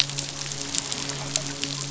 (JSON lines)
{"label": "biophony, midshipman", "recorder": "SoundTrap 500"}